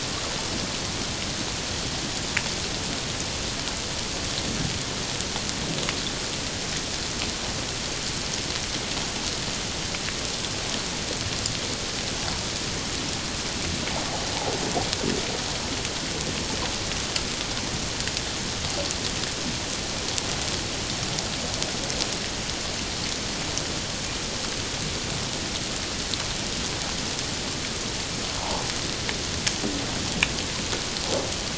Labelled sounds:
28.4	28.6	humpback whale, 0.78 to 1.0 kHz

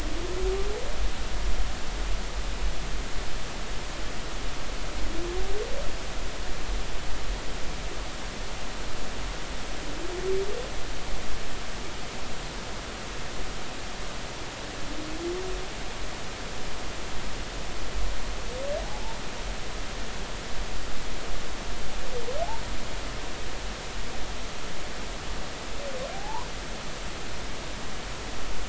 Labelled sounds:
18.8	19.2	humpback whale, 0.80 to 0.96 kHz
26.1	26.5	humpback whale, 0.80 to 1.1 kHz

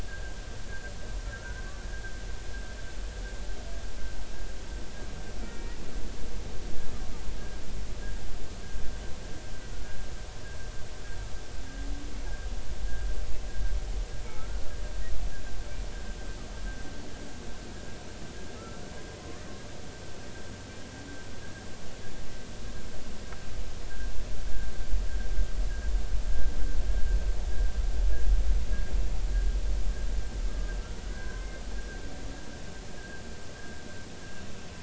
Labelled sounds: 0.1	0.3	humpback whale, 1.5 to 1.7 kHz
1.2	1.7	humpback whale, 1.3 to 1.6 kHz
5.4	5.8	humpback whale, 1.8 to 2.0 kHz
9.7	10.0	humpback whale, 1.4 to 1.5 kHz
14.3	14.6	humpback whale, 1.2 to 1.5 kHz
18.6	18.8	humpback whale, 1.2 to 1.4 kHz
19.2	19.5	humpback whale, 0.96 to 1.3 kHz
31.1	31.6	humpback whale, 0.99 to 2.2 kHz
33.0	33.2	humpback whale, 1.5 to 1.7 kHz

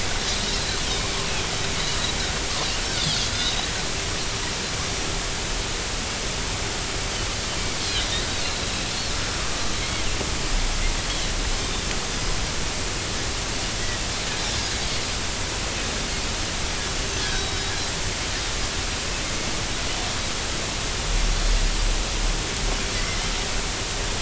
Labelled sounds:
1.0	1.3	Pacific white-sided dolphin, 0.93 to 1.2 kHz
3.3	3.7	Pacific white-sided dolphin, 3.5 to 4.0 kHz
7.8	8.1	Pacific white-sided dolphin, 3.6 to 4.3 kHz
9.8	10.1	Pacific white-sided dolphin, 2.0 to 2.3 kHz
17.0	17.7	Pacific white-sided dolphin, 3.8 to 6.4 kHz
22.9	23.2	Pacific white-sided dolphin, 1.9 to 2.1 kHz

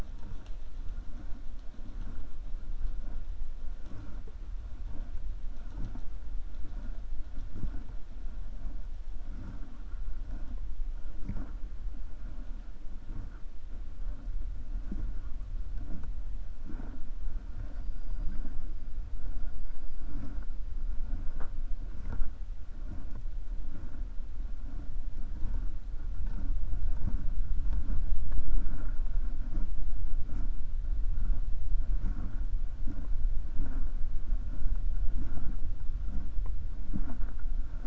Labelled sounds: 17.6	18.4	killer whale, 4.5 to 5.4 kHz

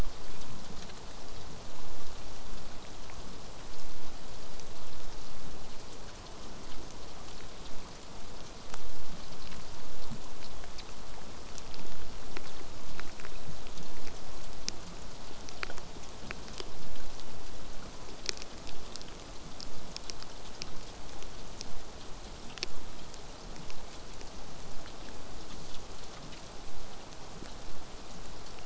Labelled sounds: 23.7	28.6	vessel noise, 0 to 8.0 kHz

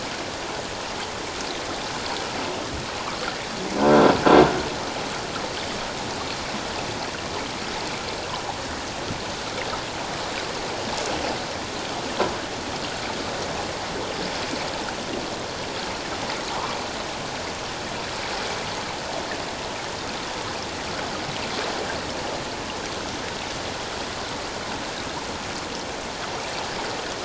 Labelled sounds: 3.8	4.1	croaking sound likely from a nearby submerged object, 1.4 to 1.6 kHz

